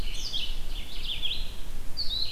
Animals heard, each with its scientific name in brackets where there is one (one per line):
Red-eyed Vireo (Vireo olivaceus)